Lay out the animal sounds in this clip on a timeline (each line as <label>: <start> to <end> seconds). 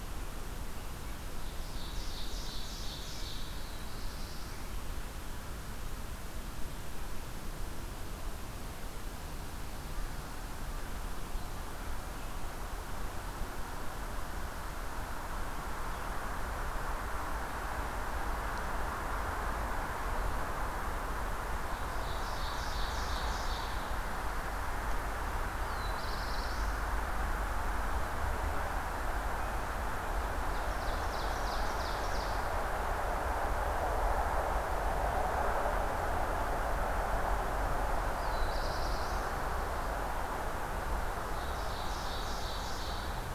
Ovenbird (Seiurus aurocapilla): 1.1 to 3.8 seconds
Black-throated Blue Warbler (Setophaga caerulescens): 3.7 to 4.7 seconds
Ovenbird (Seiurus aurocapilla): 21.6 to 23.8 seconds
Blackburnian Warbler (Setophaga fusca): 25.4 to 26.8 seconds
Ovenbird (Seiurus aurocapilla): 30.4 to 32.5 seconds
Black-throated Blue Warbler (Setophaga caerulescens): 38.1 to 39.3 seconds
Ovenbird (Seiurus aurocapilla): 41.1 to 43.3 seconds